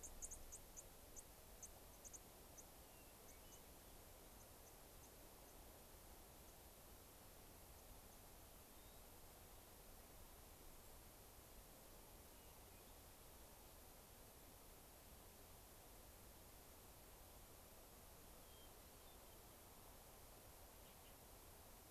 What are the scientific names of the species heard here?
Junco hyemalis, Catharus guttatus